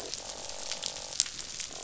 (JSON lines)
{"label": "biophony, croak", "recorder": "SoundTrap 500"}